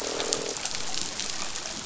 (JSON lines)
{"label": "biophony, croak", "recorder": "SoundTrap 500"}